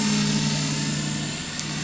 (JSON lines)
{"label": "anthrophony, boat engine", "recorder": "SoundTrap 500"}